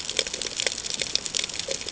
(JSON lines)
{"label": "ambient", "recorder": "HydroMoth"}